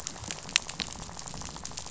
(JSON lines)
{"label": "biophony, rattle", "recorder": "SoundTrap 500"}